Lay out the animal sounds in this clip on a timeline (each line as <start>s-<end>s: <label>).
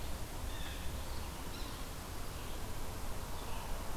0.0s-4.0s: Red-eyed Vireo (Vireo olivaceus)
0.3s-1.2s: Blue Jay (Cyanocitta cristata)
1.5s-1.7s: Yellow-bellied Sapsucker (Sphyrapicus varius)